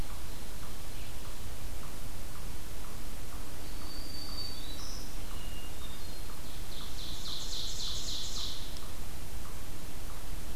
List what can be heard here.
Black-throated Green Warbler, Hermit Thrush, Ovenbird